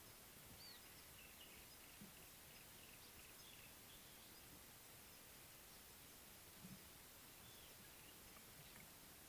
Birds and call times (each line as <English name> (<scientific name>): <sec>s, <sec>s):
Yellow-breasted Apalis (Apalis flavida): 2.2s